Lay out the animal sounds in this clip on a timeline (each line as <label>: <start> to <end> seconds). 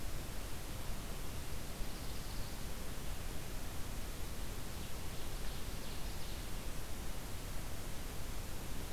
Ovenbird (Seiurus aurocapilla): 1.1 to 2.7 seconds
Ovenbird (Seiurus aurocapilla): 4.5 to 6.5 seconds